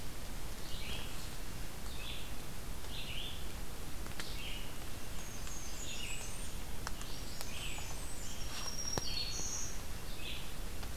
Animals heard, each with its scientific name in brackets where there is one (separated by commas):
Black-throated Green Warbler (Setophaga virens), Blackburnian Warbler (Setophaga fusca), Red-eyed Vireo (Vireo olivaceus)